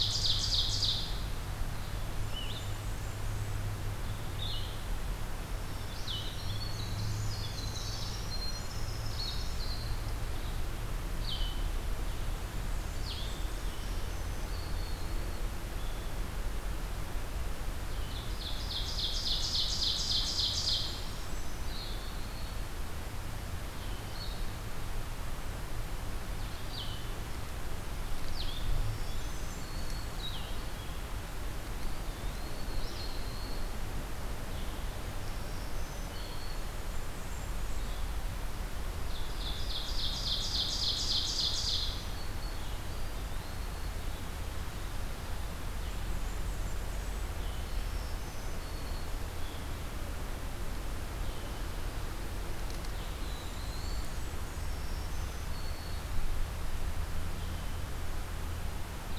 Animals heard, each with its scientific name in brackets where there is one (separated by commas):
Blue-headed Vireo (Vireo solitarius), Winter Wren (Troglodytes hiemalis), Black-throated Green Warbler (Setophaga virens), Black-throated Blue Warbler (Setophaga caerulescens), Ovenbird (Seiurus aurocapilla), Blackburnian Warbler (Setophaga fusca), Eastern Wood-Pewee (Contopus virens)